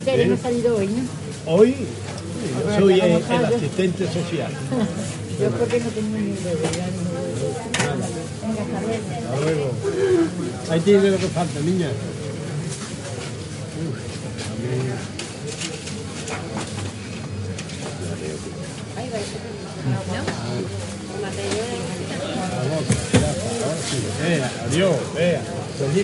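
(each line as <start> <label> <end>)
0.0 A woman is speaking. 1.2
0.0 People are talking in the background. 26.0
0.0 White noise with changing intensity. 26.0
0.1 A man is speaking. 0.4
1.4 A man is speaking. 4.6
2.4 A woman is speaking. 3.8
4.6 A woman chuckles. 5.2
5.3 A woman is speaking, her voice slightly muffled. 7.7
6.6 A loud click. 6.8
7.7 A short metallic click. 7.9
7.7 A man is speaking. 8.4
8.4 A woman is speaking, her voice slightly muffled. 9.2
9.2 A man is speaking. 9.8
9.8 A woman clears her throat in the distance. 10.6
10.6 A man is speaking. 12.1
12.7 Someone is writing on paper. 14.7
13.7 A man is speaking quietly. 15.2
15.1 A clicking sound is heard in the distance. 15.3
15.4 A quiet rattling. 16.3
16.3 Repeating clunking noises decreasing in pitch. 17.0
17.3 A rattling sound increases in pitch. 17.9
18.0 A man is speaking in a low, muffled voice. 18.7
18.9 A woman is talking in the distance. 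19.7
19.8 Several people are talking simultaneously in the distance. 20.9
21.1 A woman is speaking faintly in the distance. 21.9
22.5 A man is speaking. 26.0
22.9 A loud thump. 23.4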